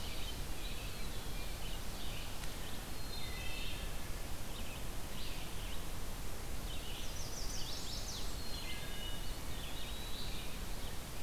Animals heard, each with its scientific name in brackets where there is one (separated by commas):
Red-eyed Vireo (Vireo olivaceus), Blackburnian Warbler (Setophaga fusca), Eastern Wood-Pewee (Contopus virens), Chestnut-sided Warbler (Setophaga pensylvanica), Wood Thrush (Hylocichla mustelina)